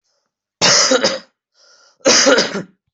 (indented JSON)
{
  "expert_labels": [
    {
      "quality": "ok",
      "cough_type": "unknown",
      "dyspnea": false,
      "wheezing": false,
      "stridor": false,
      "choking": false,
      "congestion": false,
      "nothing": true,
      "diagnosis": "lower respiratory tract infection",
      "severity": "mild"
    }
  ],
  "age": 21,
  "gender": "male",
  "respiratory_condition": false,
  "fever_muscle_pain": false,
  "status": "healthy"
}